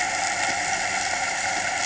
{"label": "anthrophony, boat engine", "recorder": "HydroMoth"}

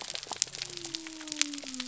{"label": "biophony", "recorder": "SoundTrap 300"}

